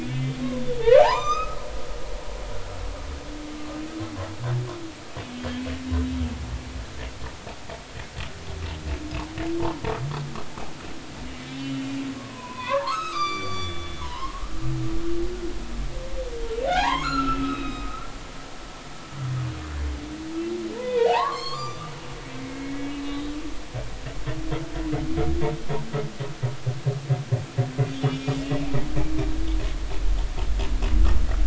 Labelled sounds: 0.1	1.6	humpback whale, 0.80 to 7.5 kHz
5.3	5.6	humpback whale, 3.1 to 3.3 kHz
11.6	14.4	humpback whale, 0.83 to 8.0 kHz
16.7	19.1	humpback whale, 0.80 to 7.6 kHz
20.8	21.9	humpback whale, 0.80 to 7.2 kHz
22.4	23.4	humpback whale, 2.0 to 3.9 kHz
27.9	28.5	humpback whale, 2.3 to 6.8 kHz

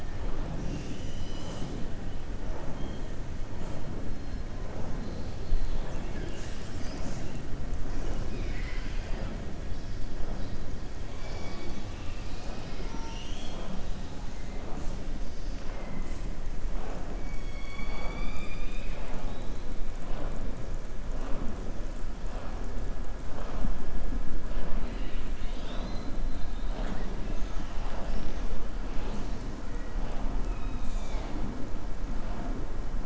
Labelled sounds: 7.9	9.3	killer whale, southern resident, 0.37 to 5.3 kHz
15.6	16.2	killer whale, southern resident, 0.56 to 2.2 kHz
17.3	19.7	killer whale, southern resident, 0.60 to 7.7 kHz
24.8	26.1	killer whale, southern resident, 1.2 to 6.1 kHz

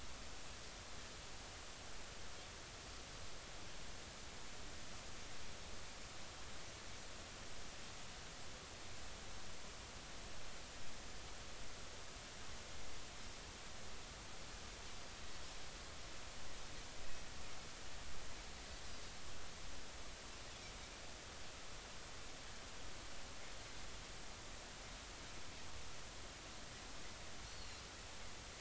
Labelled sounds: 27.4	27.8	Pacific white-sided dolphin, 4.1 to 4.5 kHz

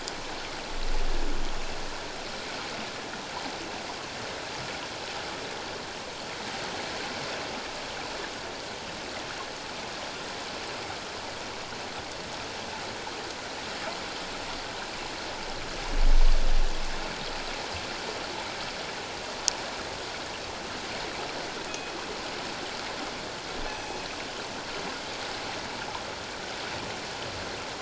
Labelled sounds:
21.7	21.9	killer whale, northern resident, G clan, call N24ii, 2.4 to 2.6 kHz
23.6	24.0	killer whale, northern resident, G clan, call N24ii, 2.5 to 7.7 kHz

